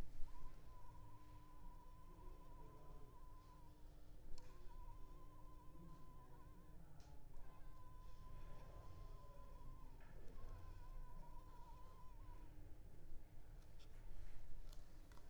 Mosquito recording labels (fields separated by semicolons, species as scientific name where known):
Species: Culex pipiens complex; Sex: female; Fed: unfed; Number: one; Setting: cup